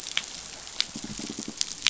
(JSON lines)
{"label": "biophony", "recorder": "SoundTrap 500"}